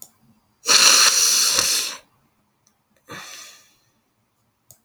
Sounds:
Sniff